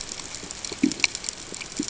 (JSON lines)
{"label": "ambient", "recorder": "HydroMoth"}